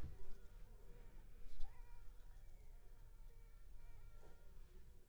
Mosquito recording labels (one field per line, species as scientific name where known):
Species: Culex pipiens complex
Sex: female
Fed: unfed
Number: one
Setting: cup